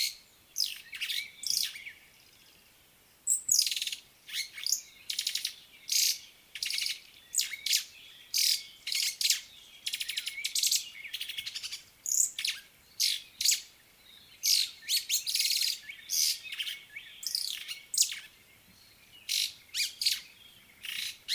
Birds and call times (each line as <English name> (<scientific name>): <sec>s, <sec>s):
White-browed Sparrow-Weaver (Plocepasser mahali): 6.7s, 15.5s